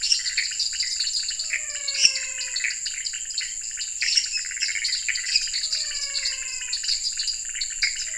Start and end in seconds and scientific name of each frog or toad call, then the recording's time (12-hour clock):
0.0	2.2	Dendropsophus minutus
0.0	5.2	Pithecopus azureus
0.0	8.1	Dendropsophus nanus
0.0	8.1	Leptodactylus podicipinus
1.5	2.9	Physalaemus albonotatus
3.9	4.6	Dendropsophus minutus
5.4	7.0	Physalaemus albonotatus
7.8	8.0	Pithecopus azureus
9:00pm